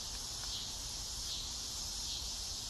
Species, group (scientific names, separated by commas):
Neotibicen pruinosus, Cicadidae